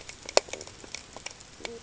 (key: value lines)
label: ambient
recorder: HydroMoth